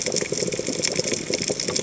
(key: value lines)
label: biophony, chatter
recorder: HydroMoth